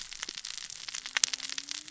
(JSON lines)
{"label": "biophony, cascading saw", "recorder": "SoundTrap 600 or HydroMoth"}